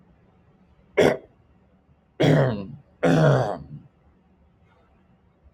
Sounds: Throat clearing